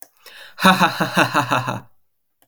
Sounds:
Laughter